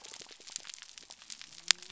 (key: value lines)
label: biophony
recorder: SoundTrap 300